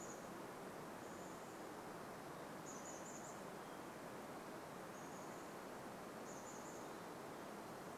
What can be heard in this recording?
Chestnut-backed Chickadee call